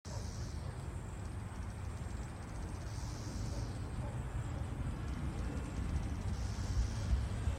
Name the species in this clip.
Magicicada cassini